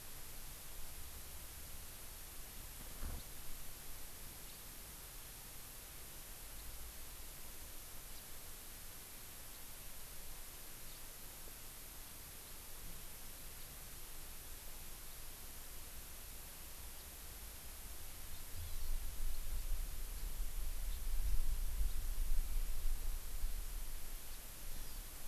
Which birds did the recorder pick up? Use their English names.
House Finch, Hawaii Amakihi